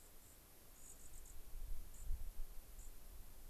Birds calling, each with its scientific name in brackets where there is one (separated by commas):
White-crowned Sparrow (Zonotrichia leucophrys)